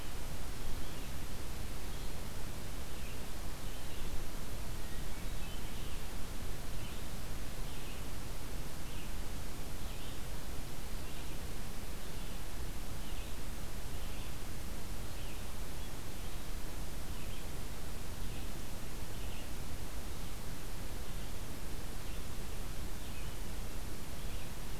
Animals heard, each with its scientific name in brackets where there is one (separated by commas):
Hermit Thrush (Catharus guttatus), Red-eyed Vireo (Vireo olivaceus)